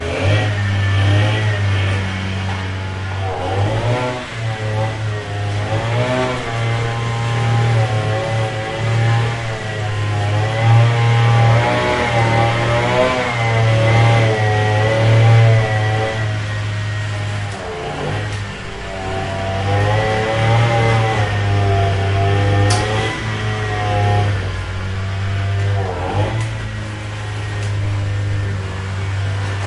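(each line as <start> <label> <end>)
0.0 A loud, continuous rumbling of a lawnmower. 29.7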